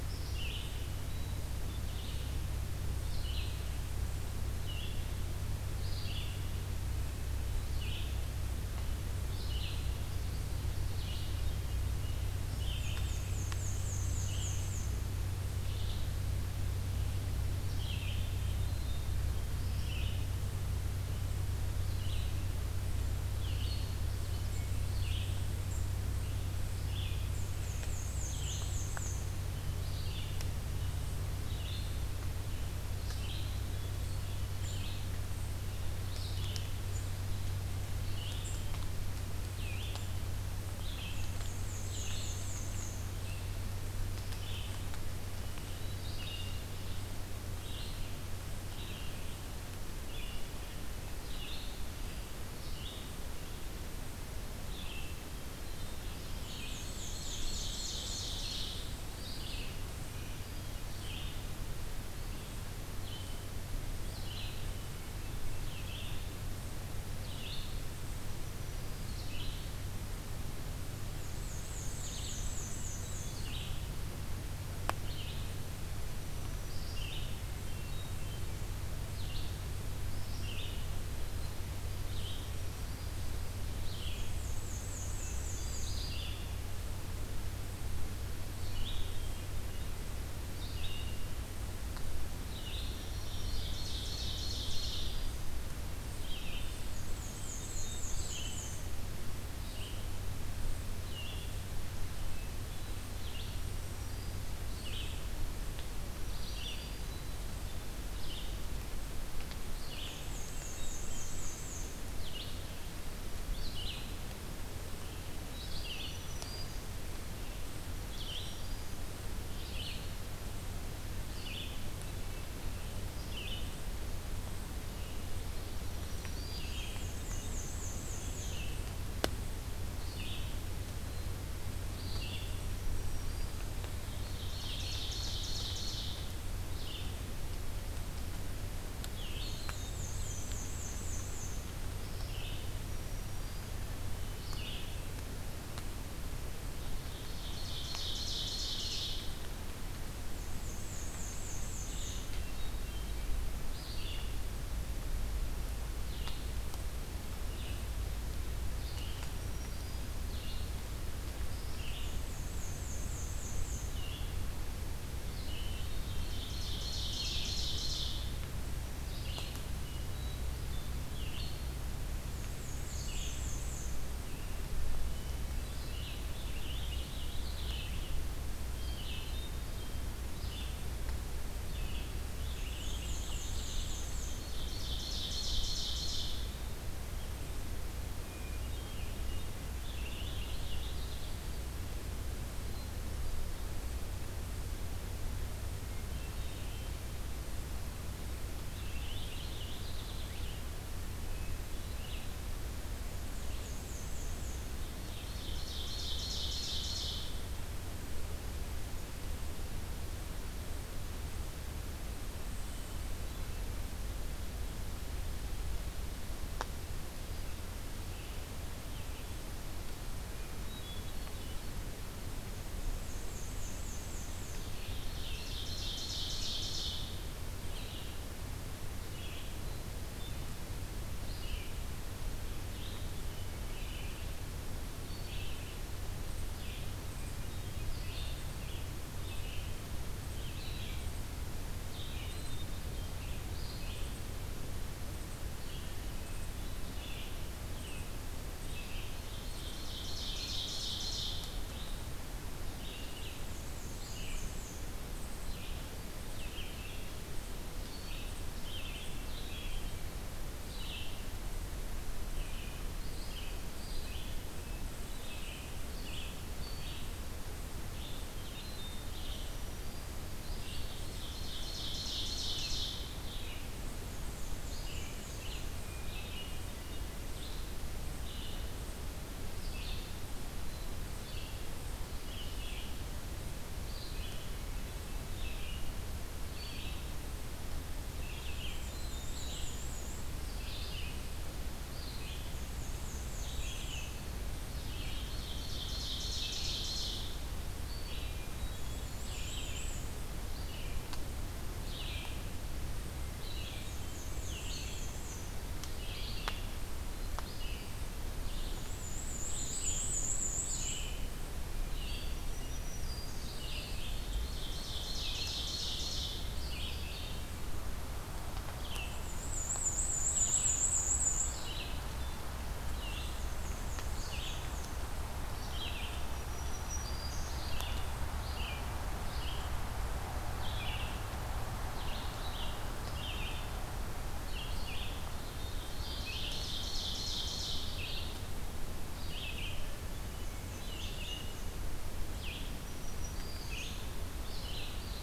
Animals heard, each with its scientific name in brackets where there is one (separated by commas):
Black-throated Green Warbler (Setophaga virens), Hermit Thrush (Catharus guttatus), Purple Finch (Haemorhous purpureus), Red-eyed Vireo (Vireo olivaceus), Black-and-white Warbler (Mniotilta varia), Ovenbird (Seiurus aurocapilla)